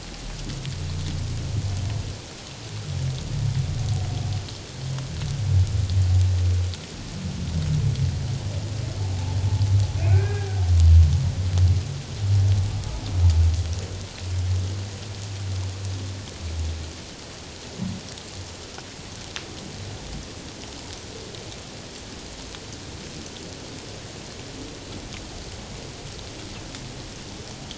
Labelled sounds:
10.0	10.5	humpback whale, 1.4 to 2.6 kHz

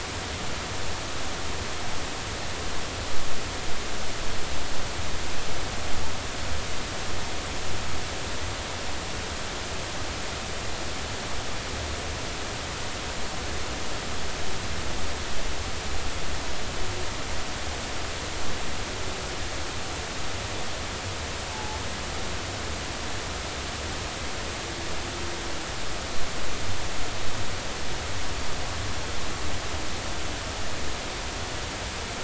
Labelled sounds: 21.5	21.8	humpback whale, 0.80 to 0.93 kHz

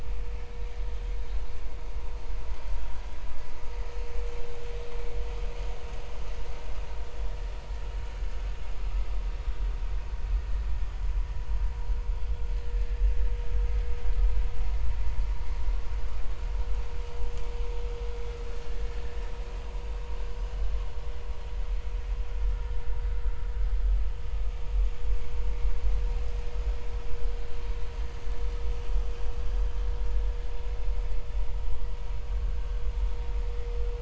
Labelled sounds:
18.5	18.8	vessel noise, 1.6 to 1.9 kHz
22.6	22.8	vessel noise, 1.7 to 1.9 kHz

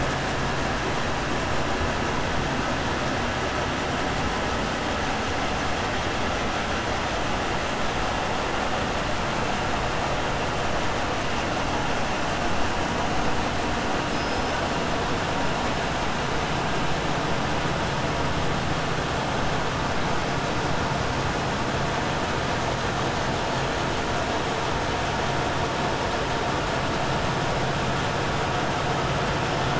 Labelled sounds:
14.0	14.5	killer whale, 4.7 to 5.6 kHz

